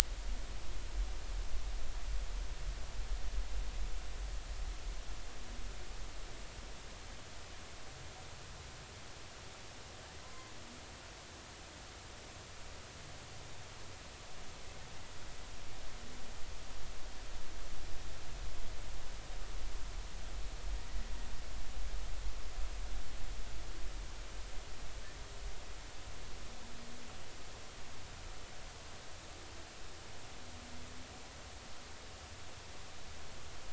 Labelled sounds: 10.2	10.5	humpback whale, 0.96 to 1.1 kHz

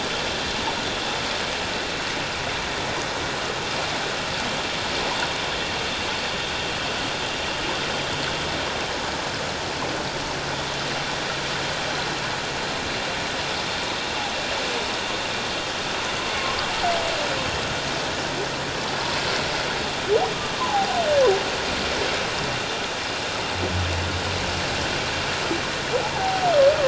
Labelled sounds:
20.5	21.0	humpback whale, 0.78 to 1.2 kHz
26.0	26.5	humpback whale, 0.78 to 0.97 kHz

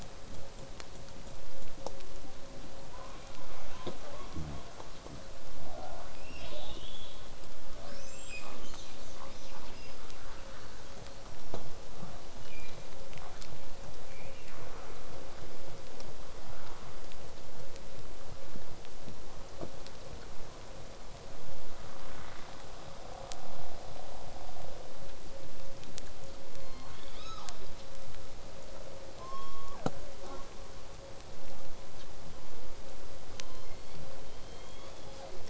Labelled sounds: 2.9	5.2	killer whale, southern resident, 0.19 to 3.6 kHz
5.6	7.3	killer whale, southern resident, 0.19 to 5.8 kHz
7.8	10.3	killer whale, southern resident, 0.19 to 8.0 kHz
12.4	13.0	killer whale, southern resident, 2.0 to 6.4 kHz
14.1	14.5	killer whale, southern resident, 0.70 to 3.1 kHz
26.5	27.6	killer whale, southern resident, 0.51 to 6.8 kHz
30.2	30.5	killer whale, southern resident, J pod, call S05, 0.18 to 6.9 kHz
33.3	35.4	killer whale, southern resident, call S01, 0.28 to 8.0 kHz

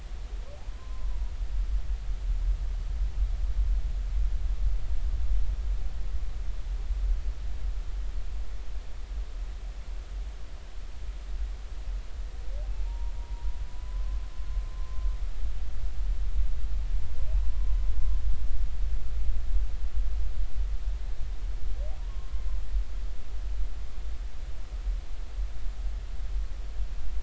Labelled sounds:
12.7	14.2	humpback whale, 0.83 to 1.2 kHz
14.7	15.0	humpback whale, 1.0 to 1.2 kHz
17.5	17.7	humpback whale, 0.99 to 1.1 kHz
22.1	22.3	humpback whale, 1.0 to 1.2 kHz

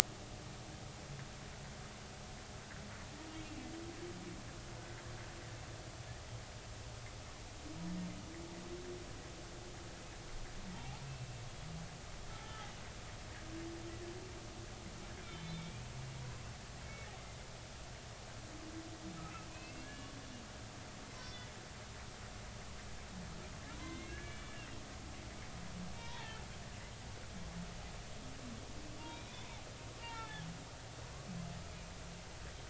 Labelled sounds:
12.4	12.7	humpback whale, 1.2 to 1.4 kHz
15.4	15.8	humpback whale, 2.1 to 3.7 kHz
19.2	20.1	humpback whale, 1.2 to 2.9 kHz
21.2	21.5	humpback whale, 3.4 to 5.6 kHz
23.7	24.6	humpback whale, 0.93 to 2.4 kHz
26.0	26.4	humpback whale, 0.83 to 3.8 kHz
29.0	30.5	humpback whale, 0.80 to 3.7 kHz

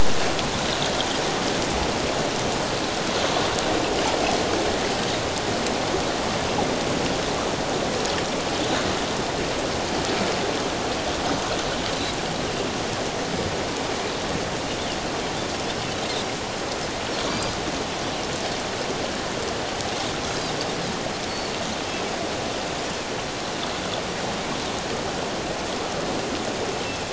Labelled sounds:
17.3	17.6	Pacific white-sided dolphin, 4.6 to 5.0 kHz

